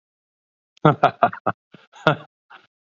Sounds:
Laughter